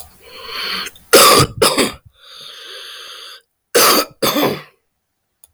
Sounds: Cough